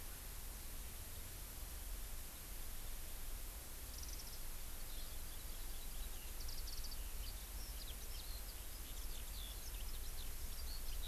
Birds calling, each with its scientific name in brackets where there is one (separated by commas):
Eurasian Skylark (Alauda arvensis), Warbling White-eye (Zosterops japonicus)